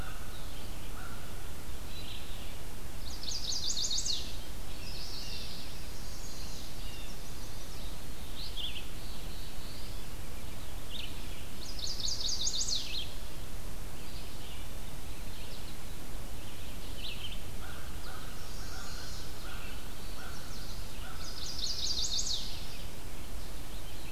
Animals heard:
American Crow (Corvus brachyrhynchos), Yellow-rumped Warbler (Setophaga coronata), Red-eyed Vireo (Vireo olivaceus), Eastern Wood-Pewee (Contopus virens), Black-throated Blue Warbler (Setophaga caerulescens), Chestnut-sided Warbler (Setophaga pensylvanica), Blue Jay (Cyanocitta cristata)

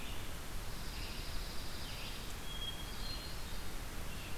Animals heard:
Hermit Thrush (Catharus guttatus), Dark-eyed Junco (Junco hyemalis), Red-eyed Vireo (Vireo olivaceus)

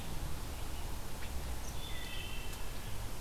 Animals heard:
Wood Thrush (Hylocichla mustelina), Red-eyed Vireo (Vireo olivaceus)

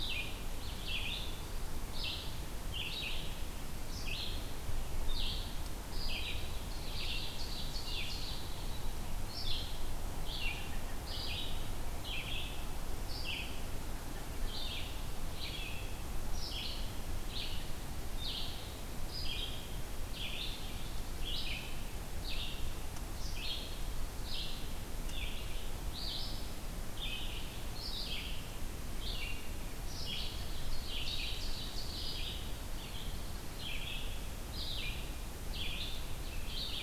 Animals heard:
Red-eyed Vireo (Vireo olivaceus), Black-throated Blue Warbler (Setophaga caerulescens), Ovenbird (Seiurus aurocapilla)

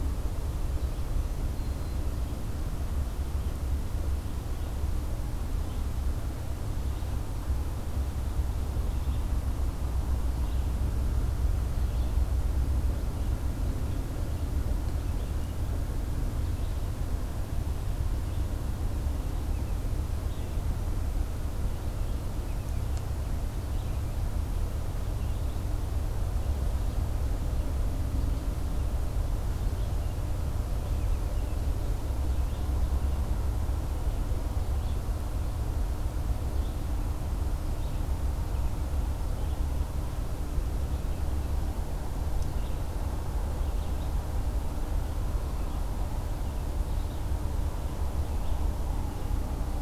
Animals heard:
Black-throated Green Warbler (Setophaga virens), Red-eyed Vireo (Vireo olivaceus)

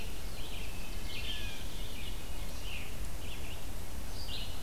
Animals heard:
Red-eyed Vireo (Vireo olivaceus), Veery (Catharus fuscescens), Blue Jay (Cyanocitta cristata)

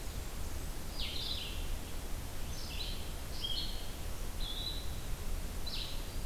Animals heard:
Red-eyed Vireo (Vireo olivaceus), Blackburnian Warbler (Setophaga fusca), Blue-headed Vireo (Vireo solitarius)

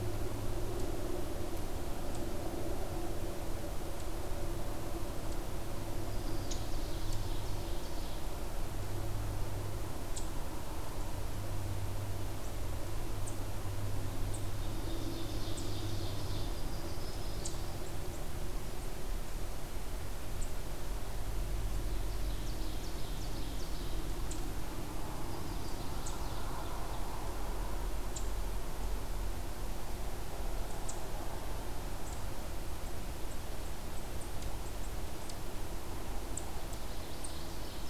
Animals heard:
Eastern Chipmunk (Tamias striatus), Ovenbird (Seiurus aurocapilla), Chestnut-sided Warbler (Setophaga pensylvanica)

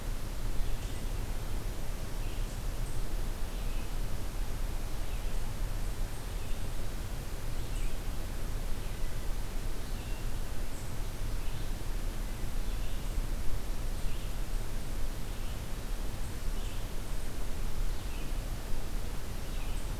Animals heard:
Red-eyed Vireo (Vireo olivaceus)

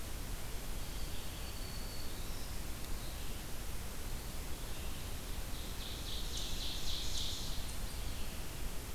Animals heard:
Black-throated Green Warbler (Setophaga virens), Ovenbird (Seiurus aurocapilla), Red-eyed Vireo (Vireo olivaceus)

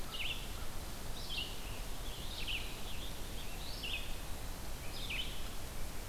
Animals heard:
American Crow (Corvus brachyrhynchos), Red-eyed Vireo (Vireo olivaceus), Scarlet Tanager (Piranga olivacea)

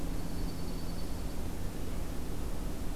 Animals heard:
Dark-eyed Junco (Junco hyemalis)

